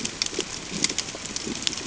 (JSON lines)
{"label": "ambient", "recorder": "HydroMoth"}